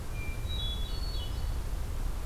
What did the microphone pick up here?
Hermit Thrush